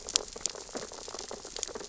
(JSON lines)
{"label": "biophony, sea urchins (Echinidae)", "recorder": "SoundTrap 600 or HydroMoth"}